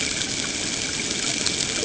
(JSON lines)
{"label": "ambient", "recorder": "HydroMoth"}